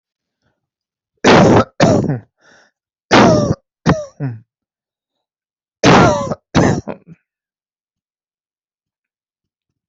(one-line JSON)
{"expert_labels": [{"quality": "ok", "cough_type": "dry", "dyspnea": false, "wheezing": true, "stridor": false, "choking": false, "congestion": false, "nothing": false, "diagnosis": "obstructive lung disease", "severity": "mild"}], "age": 41, "gender": "male", "respiratory_condition": false, "fever_muscle_pain": false, "status": "healthy"}